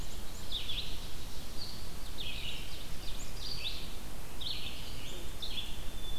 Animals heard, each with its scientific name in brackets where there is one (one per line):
Ovenbird (Seiurus aurocapilla)
Red-eyed Vireo (Vireo olivaceus)